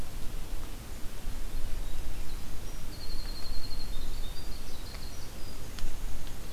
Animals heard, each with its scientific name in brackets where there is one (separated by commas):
Winter Wren (Troglodytes hiemalis)